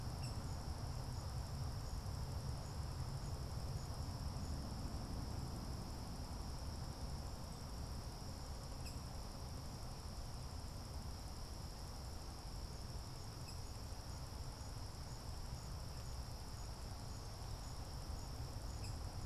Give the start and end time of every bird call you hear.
0.0s-0.5s: Rose-breasted Grosbeak (Pheucticus ludovicianus)
8.7s-9.1s: Rose-breasted Grosbeak (Pheucticus ludovicianus)
13.3s-13.7s: Rose-breasted Grosbeak (Pheucticus ludovicianus)
18.6s-19.2s: Rose-breasted Grosbeak (Pheucticus ludovicianus)

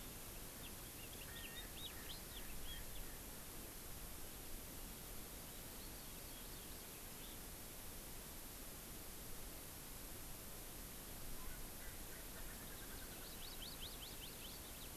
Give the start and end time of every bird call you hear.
0.5s-2.8s: House Finch (Haemorhous mexicanus)
1.1s-3.2s: Erckel's Francolin (Pternistis erckelii)
11.3s-13.3s: Erckel's Francolin (Pternistis erckelii)
13.1s-14.9s: Hawaii Amakihi (Chlorodrepanis virens)

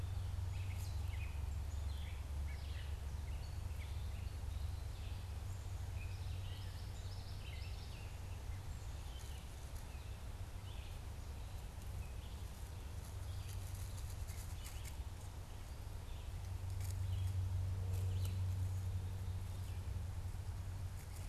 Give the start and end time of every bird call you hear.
0.0s-8.6s: Gray Catbird (Dumetella carolinensis)
0.0s-21.3s: Red-eyed Vireo (Vireo olivaceus)

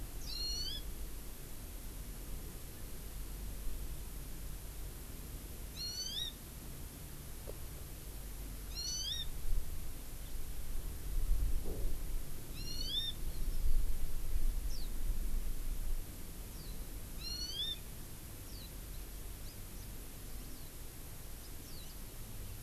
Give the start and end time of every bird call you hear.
0.2s-0.8s: Hawaii Amakihi (Chlorodrepanis virens)
5.7s-6.3s: Hawaii Amakihi (Chlorodrepanis virens)
8.7s-9.3s: Hawaii Amakihi (Chlorodrepanis virens)
12.5s-13.8s: Hawaii Amakihi (Chlorodrepanis virens)
14.7s-14.9s: Eurasian Skylark (Alauda arvensis)
16.5s-16.8s: Eurasian Skylark (Alauda arvensis)
17.2s-17.7s: Hawaii Amakihi (Chlorodrepanis virens)
18.5s-18.7s: Eurasian Skylark (Alauda arvensis)
19.4s-19.9s: Hawaii Amakihi (Chlorodrepanis virens)
20.5s-20.7s: Eurasian Skylark (Alauda arvensis)
21.6s-22.0s: Eurasian Skylark (Alauda arvensis)

